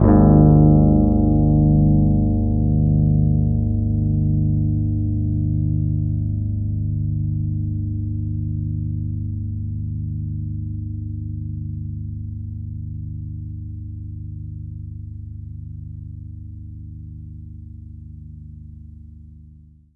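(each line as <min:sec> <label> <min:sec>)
0:00.0 A guitar humbucker chord with bass is played, gradually fading with a slight hum. 0:20.0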